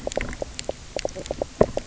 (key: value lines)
label: biophony, knock croak
recorder: SoundTrap 300